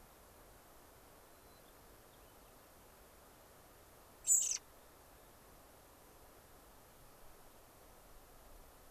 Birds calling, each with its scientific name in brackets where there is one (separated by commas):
White-crowned Sparrow (Zonotrichia leucophrys), American Robin (Turdus migratorius)